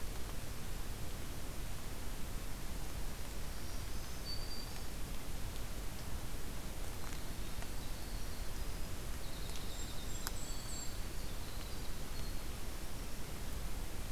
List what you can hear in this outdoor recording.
Black-throated Green Warbler, Winter Wren, Golden-crowned Kinglet